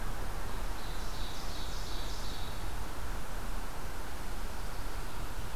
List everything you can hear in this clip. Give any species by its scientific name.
Seiurus aurocapilla